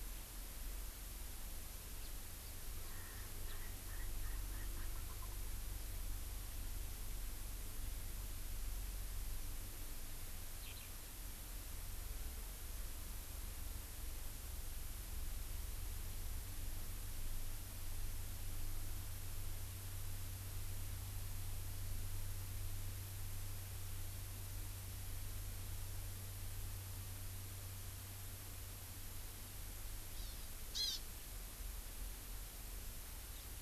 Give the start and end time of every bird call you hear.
2.0s-2.1s: House Finch (Haemorhous mexicanus)
2.8s-5.5s: Erckel's Francolin (Pternistis erckelii)
3.4s-3.6s: House Finch (Haemorhous mexicanus)
10.5s-10.9s: Eurasian Skylark (Alauda arvensis)
30.0s-31.0s: Hawaii Amakihi (Chlorodrepanis virens)

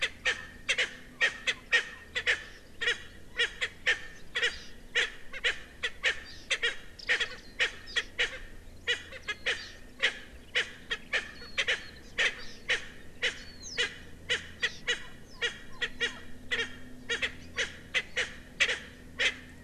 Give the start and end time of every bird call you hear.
0.0s-0.4s: Erckel's Francolin (Pternistis erckelii)
0.7s-0.9s: Erckel's Francolin (Pternistis erckelii)
1.2s-1.8s: Erckel's Francolin (Pternistis erckelii)
2.1s-2.4s: Erckel's Francolin (Pternistis erckelii)
2.8s-3.0s: Erckel's Francolin (Pternistis erckelii)
3.3s-4.0s: Erckel's Francolin (Pternistis erckelii)
4.3s-4.5s: Erckel's Francolin (Pternistis erckelii)
4.9s-5.5s: Erckel's Francolin (Pternistis erckelii)
5.8s-6.2s: Erckel's Francolin (Pternistis erckelii)
6.5s-6.7s: Erckel's Francolin (Pternistis erckelii)
7.1s-8.4s: Erckel's Francolin (Pternistis erckelii)
8.8s-9.6s: Erckel's Francolin (Pternistis erckelii)
10.0s-10.2s: Erckel's Francolin (Pternistis erckelii)
10.5s-11.8s: Erckel's Francolin (Pternistis erckelii)
11.3s-11.6s: Warbling White-eye (Zosterops japonicus)
12.2s-12.3s: Erckel's Francolin (Pternistis erckelii)
12.7s-12.8s: Erckel's Francolin (Pternistis erckelii)
13.2s-13.3s: Erckel's Francolin (Pternistis erckelii)
13.4s-13.7s: Warbling White-eye (Zosterops japonicus)
13.8s-13.9s: Erckel's Francolin (Pternistis erckelii)
14.3s-15.0s: Erckel's Francolin (Pternistis erckelii)
15.4s-15.5s: Erckel's Francolin (Pternistis erckelii)
15.8s-16.1s: Erckel's Francolin (Pternistis erckelii)
16.5s-16.7s: Erckel's Francolin (Pternistis erckelii)
17.1s-18.3s: Erckel's Francolin (Pternistis erckelii)
18.6s-18.8s: Erckel's Francolin (Pternistis erckelii)
19.1s-19.3s: Erckel's Francolin (Pternistis erckelii)

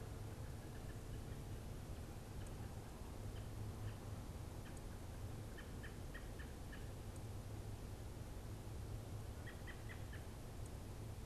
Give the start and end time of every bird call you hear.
0.1s-10.3s: American Robin (Turdus migratorius)

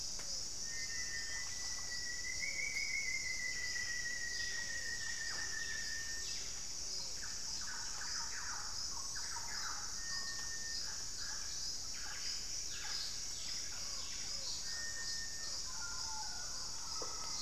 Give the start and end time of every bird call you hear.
0.0s-6.0s: Pale-vented Pigeon (Patagioenas cayennensis)
0.0s-17.4s: Cinereous Tinamou (Crypturellus cinereus)
0.5s-1.7s: unidentified bird
0.5s-7.0s: Rufous-fronted Antthrush (Formicarius rufifrons)
2.9s-6.7s: Buff-breasted Wren (Cantorchilus leucotis)
4.9s-7.5s: Gilded Barbet (Capito auratus)
6.6s-10.6s: Thrush-like Wren (Campylorhynchus turdinus)
9.8s-15.1s: Buff-breasted Wren (Cantorchilus leucotis)
14.7s-17.4s: Mealy Parrot (Amazona farinosa)
16.6s-17.4s: Plumbeous Antbird (Myrmelastes hyperythrus)

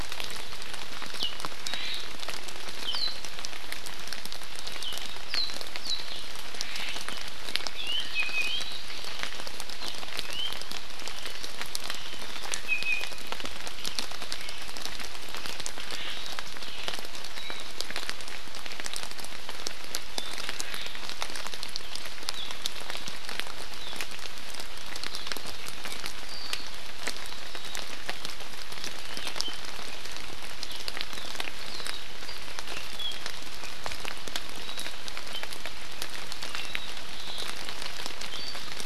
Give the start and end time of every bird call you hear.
1.1s-1.3s: Warbling White-eye (Zosterops japonicus)
1.6s-1.9s: Warbling White-eye (Zosterops japonicus)
1.6s-2.0s: Omao (Myadestes obscurus)
2.8s-3.2s: Warbling White-eye (Zosterops japonicus)
4.8s-4.9s: Warbling White-eye (Zosterops japonicus)
5.2s-5.5s: Warbling White-eye (Zosterops japonicus)
5.8s-6.0s: Warbling White-eye (Zosterops japonicus)
6.6s-7.0s: Omao (Myadestes obscurus)
7.7s-8.8s: Iiwi (Drepanis coccinea)
10.2s-10.5s: Iiwi (Drepanis coccinea)
12.6s-13.2s: Iiwi (Drepanis coccinea)
15.8s-16.1s: Omao (Myadestes obscurus)
17.3s-17.6s: Warbling White-eye (Zosterops japonicus)
20.1s-20.3s: Warbling White-eye (Zosterops japonicus)
34.6s-34.8s: Warbling White-eye (Zosterops japonicus)

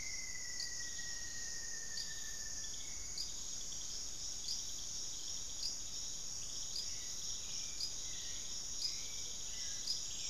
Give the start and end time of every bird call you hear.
0.0s-2.9s: Rufous-fronted Antthrush (Formicarius rufifrons)
0.0s-10.3s: Hauxwell's Thrush (Turdus hauxwelli)

